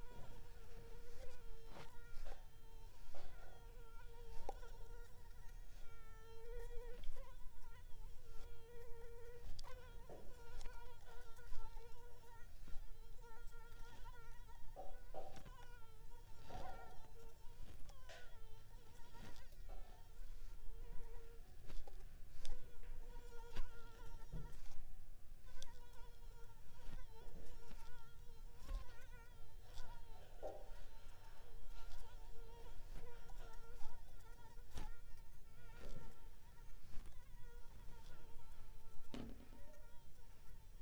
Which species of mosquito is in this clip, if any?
Anopheles arabiensis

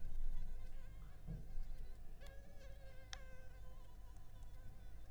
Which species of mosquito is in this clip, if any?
Anopheles arabiensis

